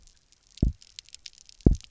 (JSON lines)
{"label": "biophony, double pulse", "recorder": "SoundTrap 300"}